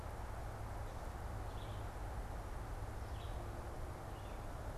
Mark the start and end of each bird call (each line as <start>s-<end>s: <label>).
0.0s-4.8s: Red-eyed Vireo (Vireo olivaceus)